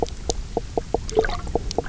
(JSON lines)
{"label": "biophony, knock croak", "recorder": "SoundTrap 300"}